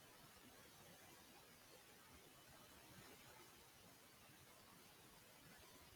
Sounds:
Laughter